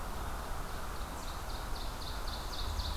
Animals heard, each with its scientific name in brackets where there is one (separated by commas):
Ovenbird (Seiurus aurocapilla), Red-eyed Vireo (Vireo olivaceus)